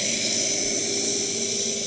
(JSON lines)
{"label": "anthrophony, boat engine", "recorder": "HydroMoth"}